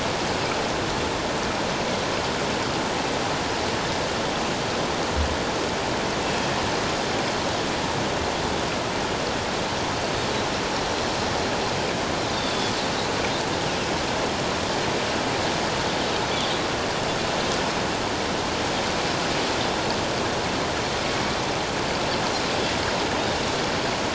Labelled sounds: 6.2	6.5	Pacific white-sided dolphin, 2.5 to 2.7 kHz
16.3	16.6	Pacific white-sided dolphin, 3.1 to 3.6 kHz

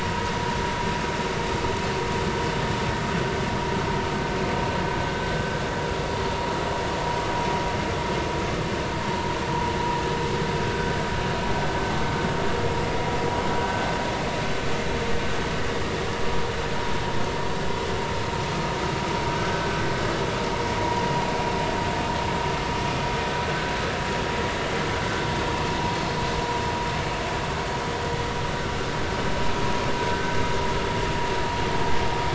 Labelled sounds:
10.6	10.9	vessel noise, 1.4 to 1.6 kHz

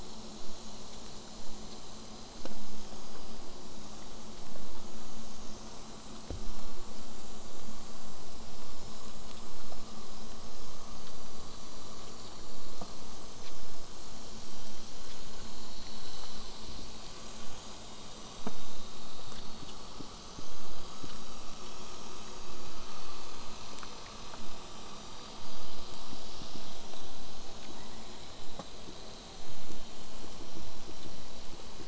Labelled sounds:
27.7	28.3	killer whale, southern resident, J pod, 0.85 to 2.5 kHz

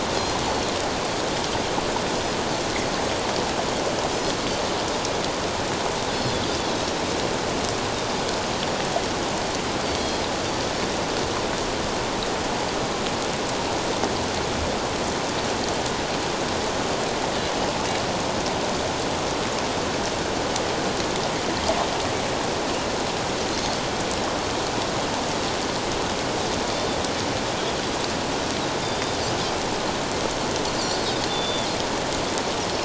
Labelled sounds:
6.5	6.7	Pacific white-sided dolphin, 3.3 to 3.7 kHz
9.8	10.2	Pacific white-sided dolphin, 4.3 to 4.7 kHz
23.5	23.8	Pacific white-sided dolphin, 4.2 to 4.3 kHz
26.7	27.0	Pacific white-sided dolphin, 3.5 to 3.6 kHz
28.8	29.2	Pacific white-sided dolphin, 3.5 to 3.7 kHz
30.7	31.7	Pacific white-sided dolphin, 3.2 to 7.3 kHz

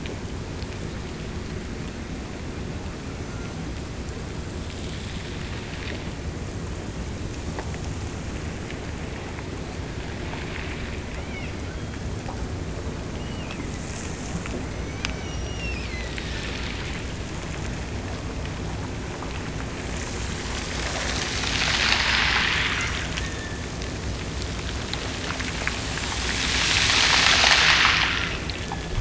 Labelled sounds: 11.1	12.2	killer whale, Bigg's (transient), Gulf of Alaska transient, 1.2 to 3.4 kHz
13.1	16.7	killer whale, Bigg's (transient), Gulf of Alaska transient, 1.6 to 6.2 kHz
22.9	23.7	killer whale, Bigg's (transient), Gulf of Alaska transient, 1.6 to 3.7 kHz
28.3	28.9	killer whale, Bigg's (transient), Gulf of Alaska transient, 1.5 to 3.6 kHz

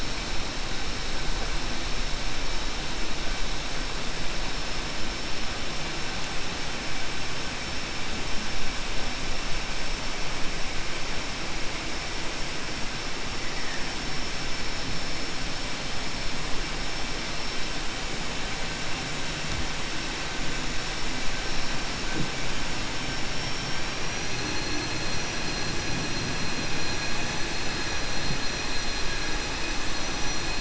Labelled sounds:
23.3	24.3	vessel noise, 4.7 to 5.8 kHz

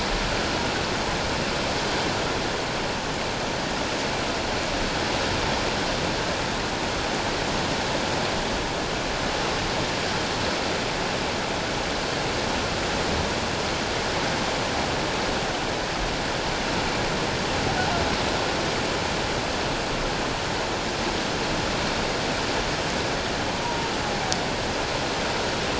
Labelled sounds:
23.5	23.9	humpback whale, 0.88 to 1.1 kHz

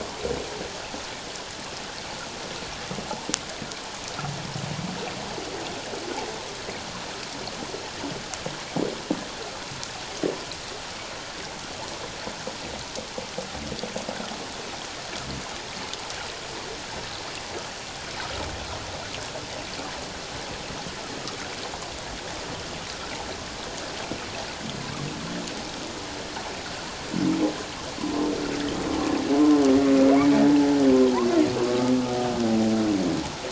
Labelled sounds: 29.3	29.6	humpback whale, 0.97 to 1.1 kHz
31.6	31.9	humpback whale, 1.1 to 1.3 kHz

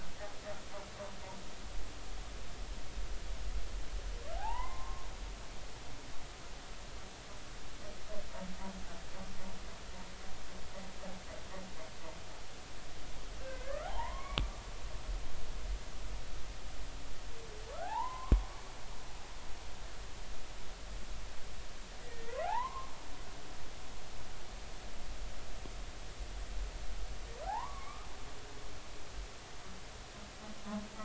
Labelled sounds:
4.3	5.1	humpback whale, 0.80 to 2.2 kHz
13.4	14.5	humpback whale, 0.80 to 2.4 kHz
17.7	18.5	humpback whale, 0.80 to 1.9 kHz
22.0	22.9	humpback whale, 0.80 to 2.2 kHz
27.5	28.1	humpback whale, 0.80 to 1.3 kHz
30.9	31.0	humpback whale, 1.2 to 1.8 kHz

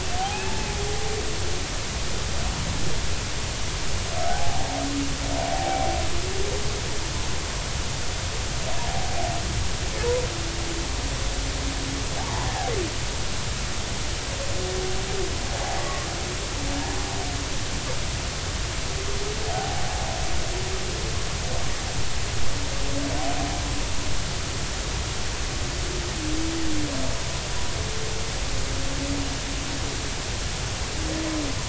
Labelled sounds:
0.2	0.7	humpback whale, 0.80 to 0.96 kHz
4.2	4.7	humpback whale, 0.80 to 0.90 kHz
5.5	6.0	humpback whale, 0.80 to 0.93 kHz
12.2	12.7	humpback whale, 0.80 to 1.2 kHz
15.8	16.1	humpback whale, 1.1 to 1.2 kHz
19.5	19.8	humpback whale, 0.80 to 0.86 kHz

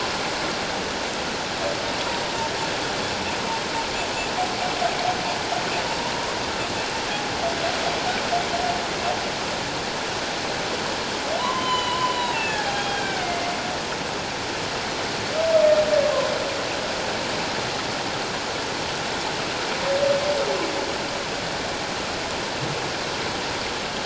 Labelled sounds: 11.4	13.5	humpback whale, 0.78 to 7.2 kHz

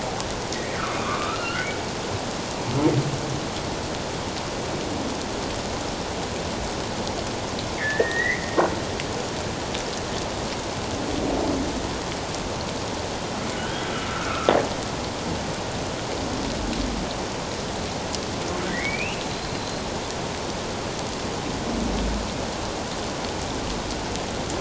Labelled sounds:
0.5	1.7	humpback whale, 1.0 to 2.1 kHz
7.8	8.5	humpback whale, 1.7 to 2.3 kHz
13.5	14.5	humpback whale, 1.2 to 1.7 kHz
18.7	19.8	humpback whale, 1.7 to 4.2 kHz

